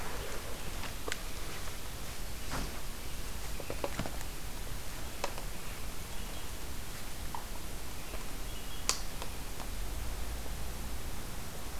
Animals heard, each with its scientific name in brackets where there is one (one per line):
American Robin (Turdus migratorius)